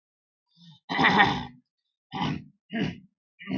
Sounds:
Throat clearing